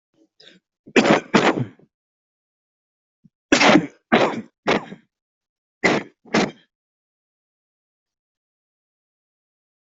{"expert_labels": [{"quality": "ok", "cough_type": "dry", "dyspnea": false, "wheezing": false, "stridor": false, "choking": false, "congestion": false, "nothing": true, "diagnosis": "COVID-19", "severity": "mild"}], "age": 32, "gender": "male", "respiratory_condition": false, "fever_muscle_pain": false, "status": "COVID-19"}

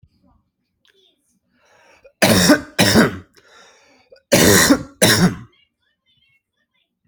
{"expert_labels": [{"quality": "good", "cough_type": "dry", "dyspnea": false, "wheezing": false, "stridor": false, "choking": false, "congestion": false, "nothing": true, "diagnosis": "healthy cough", "severity": "pseudocough/healthy cough"}], "age": 31, "gender": "male", "respiratory_condition": false, "fever_muscle_pain": false, "status": "symptomatic"}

